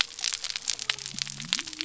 {"label": "biophony", "recorder": "SoundTrap 300"}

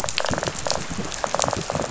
{"label": "biophony, rattle", "recorder": "SoundTrap 500"}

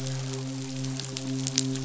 {"label": "biophony, midshipman", "recorder": "SoundTrap 500"}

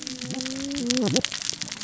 {"label": "biophony, cascading saw", "recorder": "SoundTrap 600 or HydroMoth"}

